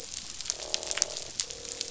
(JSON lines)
{"label": "biophony, croak", "recorder": "SoundTrap 500"}